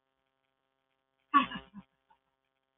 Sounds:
Laughter